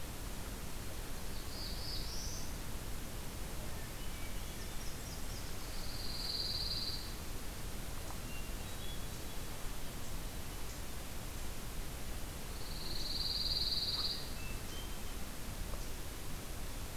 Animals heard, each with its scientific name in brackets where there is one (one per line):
Hermit Thrush (Catharus guttatus)
Black-throated Blue Warbler (Setophaga caerulescens)
Pine Warbler (Setophaga pinus)
Nashville Warbler (Leiothlypis ruficapilla)